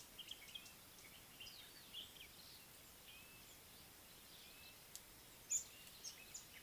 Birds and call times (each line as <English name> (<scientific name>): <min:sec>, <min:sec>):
Speckled Mousebird (Colius striatus): 0:05.6